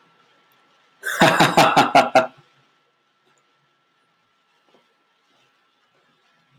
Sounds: Laughter